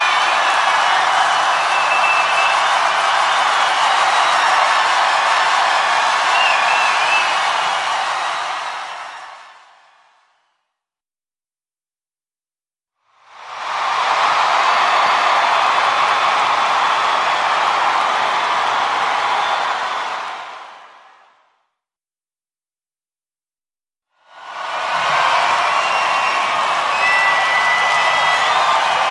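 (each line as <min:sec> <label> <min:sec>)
0:00.0 People cheering. 0:09.5
0:12.8 Loud applause and cheering from the audience. 0:21.2
0:24.3 Whistles and applause from an enthusiastic crowd. 0:29.1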